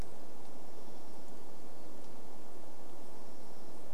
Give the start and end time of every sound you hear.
[0, 4] unidentified sound

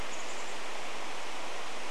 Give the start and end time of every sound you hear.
[0, 2] Chestnut-backed Chickadee call

